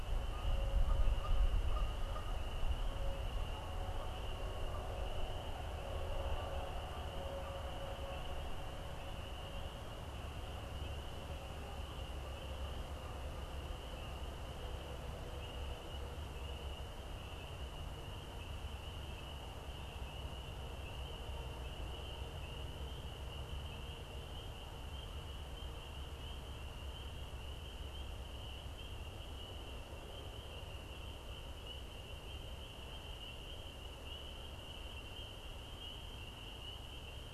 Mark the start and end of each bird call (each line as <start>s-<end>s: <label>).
0.0s-2.5s: Canada Goose (Branta canadensis)